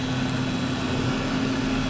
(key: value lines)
label: anthrophony, boat engine
recorder: SoundTrap 500